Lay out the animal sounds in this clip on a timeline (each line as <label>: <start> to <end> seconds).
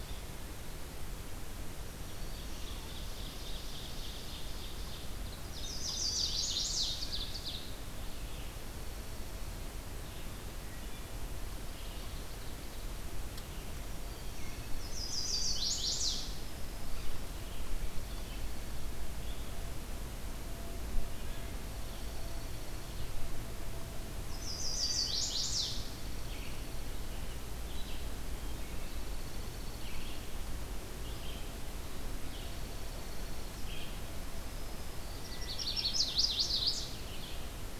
Red-eyed Vireo (Vireo olivaceus): 0.0 to 37.8 seconds
Ovenbird (Seiurus aurocapilla): 2.2 to 5.2 seconds
Chestnut-sided Warbler (Setophaga pensylvanica): 5.4 to 7.1 seconds
Ovenbird (Seiurus aurocapilla): 6.4 to 7.6 seconds
Dark-eyed Junco (Junco hyemalis): 8.2 to 9.7 seconds
Ovenbird (Seiurus aurocapilla): 11.2 to 13.0 seconds
Dark-eyed Junco (Junco hyemalis): 13.8 to 15.2 seconds
Chestnut-sided Warbler (Setophaga pensylvanica): 14.7 to 16.2 seconds
Black-throated Green Warbler (Setophaga virens): 16.3 to 17.3 seconds
Dark-eyed Junco (Junco hyemalis): 17.5 to 18.9 seconds
Dark-eyed Junco (Junco hyemalis): 21.7 to 23.1 seconds
Chestnut-sided Warbler (Setophaga pensylvanica): 24.3 to 26.0 seconds
Dark-eyed Junco (Junco hyemalis): 25.6 to 27.0 seconds
Dark-eyed Junco (Junco hyemalis): 28.7 to 30.4 seconds
Dark-eyed Junco (Junco hyemalis): 32.0 to 33.7 seconds
Black-throated Green Warbler (Setophaga virens): 34.2 to 35.3 seconds
Chestnut-sided Warbler (Setophaga pensylvanica): 35.1 to 36.9 seconds